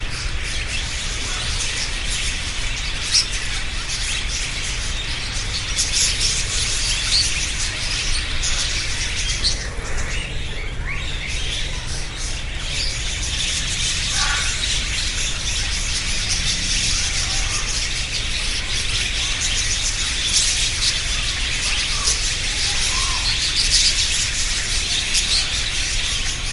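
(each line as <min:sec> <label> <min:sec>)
0:00.0 A large number of birds tweeting chaotically. 0:26.5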